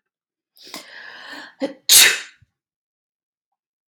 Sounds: Sneeze